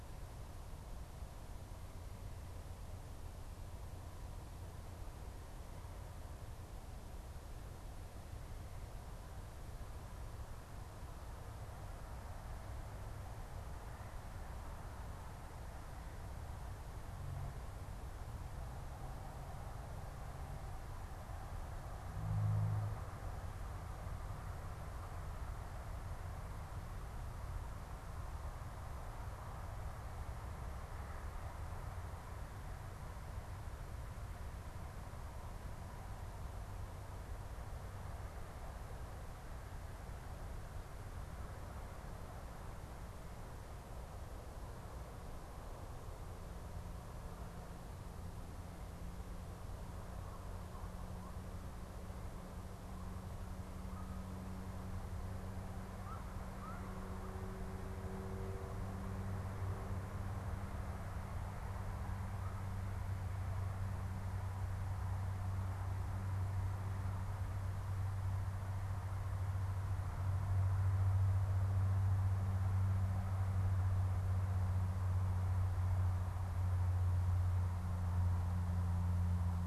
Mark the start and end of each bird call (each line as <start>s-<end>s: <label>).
55.9s-57.4s: unidentified bird